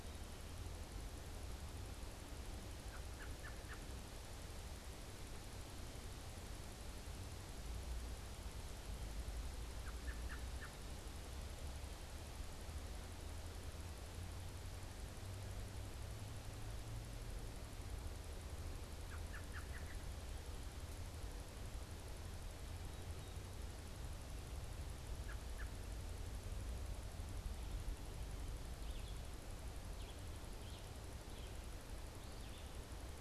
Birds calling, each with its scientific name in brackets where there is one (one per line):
Red-eyed Vireo (Vireo olivaceus)
American Robin (Turdus migratorius)